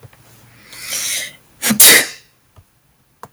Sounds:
Sneeze